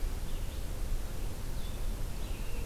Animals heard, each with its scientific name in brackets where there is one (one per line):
American Robin (Turdus migratorius)
Red-eyed Vireo (Vireo olivaceus)